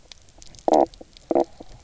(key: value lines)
label: biophony, knock croak
recorder: SoundTrap 300